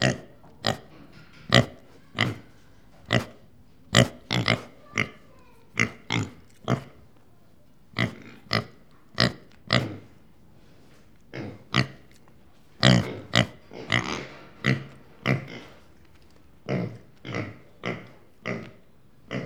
What sound can be heard?
pig